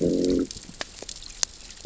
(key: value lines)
label: biophony, growl
recorder: SoundTrap 600 or HydroMoth